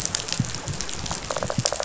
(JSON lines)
{"label": "biophony, rattle response", "recorder": "SoundTrap 500"}